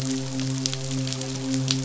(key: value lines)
label: biophony, midshipman
recorder: SoundTrap 500